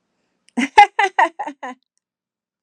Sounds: Laughter